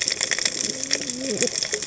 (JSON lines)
{"label": "biophony, cascading saw", "recorder": "HydroMoth"}